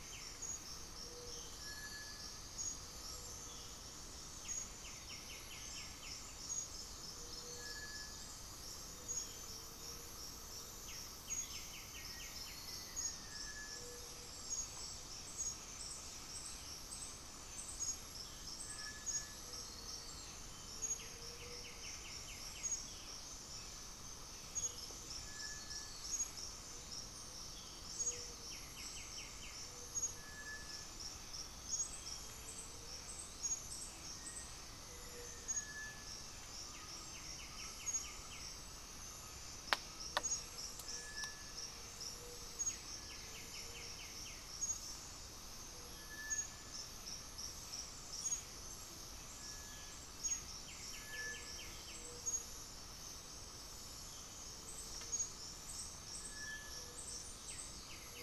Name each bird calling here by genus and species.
Crypturellus cinereus, Leptotila rufaxilla, Crypturellus undulatus, unidentified bird, Pachyramphus polychopterus, Dendroma erythroptera, Formicarius analis